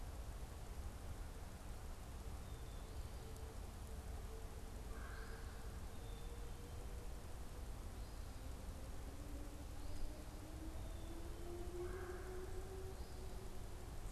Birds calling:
Black-capped Chickadee (Poecile atricapillus), Red-bellied Woodpecker (Melanerpes carolinus)

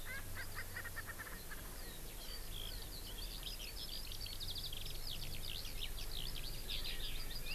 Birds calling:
Erckel's Francolin (Pternistis erckelii), Eurasian Skylark (Alauda arvensis)

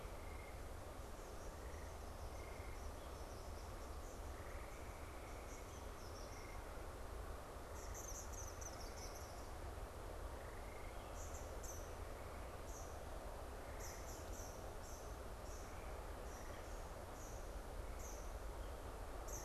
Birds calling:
Eastern Kingbird (Tyrannus tyrannus)

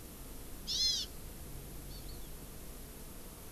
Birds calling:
Hawaii Amakihi (Chlorodrepanis virens)

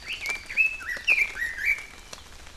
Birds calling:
Red-billed Leiothrix (Leiothrix lutea)

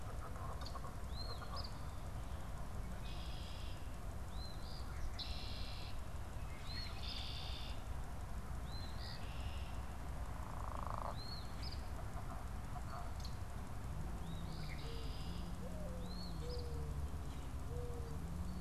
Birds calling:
Mourning Dove (Zenaida macroura), Eastern Phoebe (Sayornis phoebe), Red-winged Blackbird (Agelaius phoeniceus)

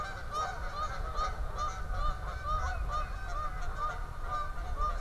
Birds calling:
Tufted Titmouse (Baeolophus bicolor), Canada Goose (Branta canadensis)

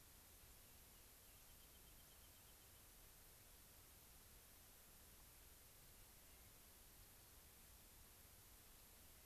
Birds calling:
Rock Wren (Salpinctes obsoletus)

